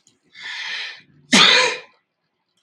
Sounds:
Sneeze